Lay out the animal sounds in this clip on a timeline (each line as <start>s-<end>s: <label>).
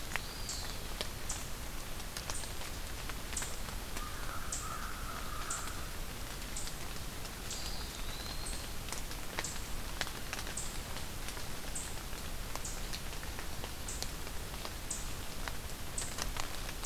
0.0s-0.8s: Eastern Wood-Pewee (Contopus virens)
3.8s-5.8s: American Crow (Corvus brachyrhynchos)
7.3s-8.7s: Eastern Wood-Pewee (Contopus virens)